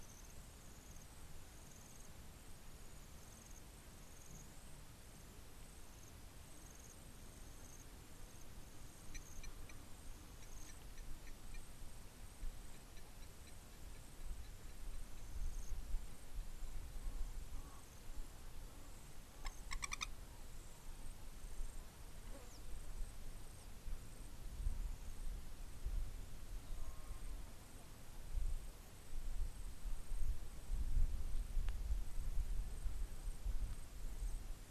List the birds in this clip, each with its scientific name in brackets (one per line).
Long-toed Lapwing (Vanellus crassirostris)